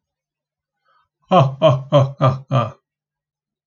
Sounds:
Laughter